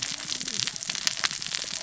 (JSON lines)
{"label": "biophony, cascading saw", "recorder": "SoundTrap 600 or HydroMoth"}